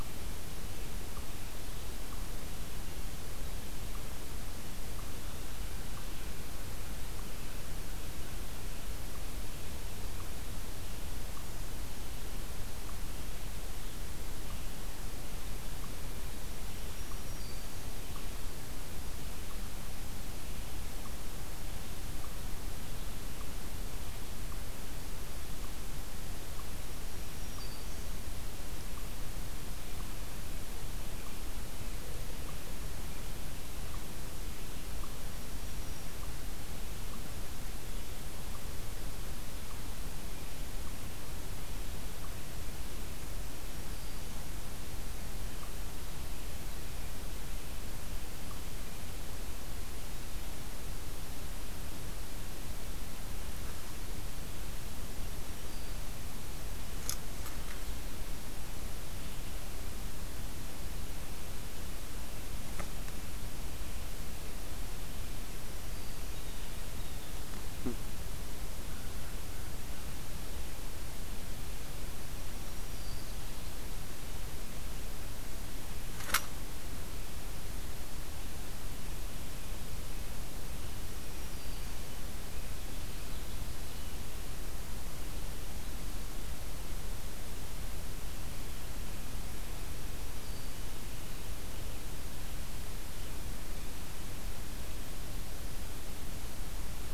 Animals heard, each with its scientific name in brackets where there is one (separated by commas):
Black-throated Green Warbler (Setophaga virens)